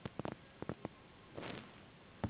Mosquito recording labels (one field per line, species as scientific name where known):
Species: Anopheles gambiae s.s.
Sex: female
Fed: unfed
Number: one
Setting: insect culture